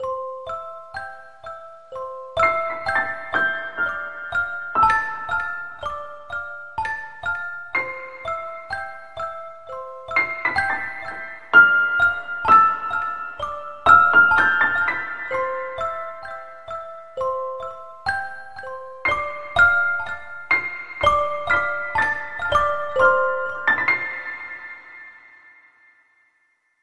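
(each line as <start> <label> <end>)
0.0 Soft, lo-fi piano plays chill melodic phrases with a smooth and clean tone. 25.7
0.1 A short melodic piano phrase with a soft, clean tone. 2.2
2.3 A second melodic piano phrase plays with a soft, clean tone. 4.7
11.5 A piano plays a soft, clean phrase. 12.7
13.9 A piano plays a soft, clean phrase. 14.5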